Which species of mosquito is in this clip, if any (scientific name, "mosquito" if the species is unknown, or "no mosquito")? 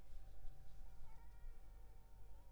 Culex pipiens complex